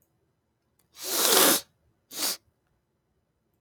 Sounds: Sniff